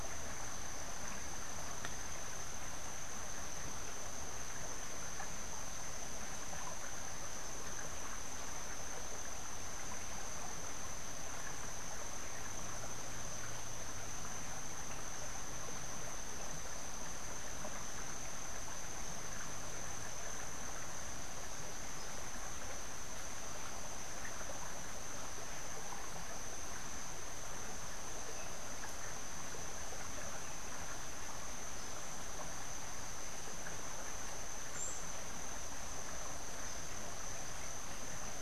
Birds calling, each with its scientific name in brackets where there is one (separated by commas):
Buff-throated Saltator (Saltator maximus)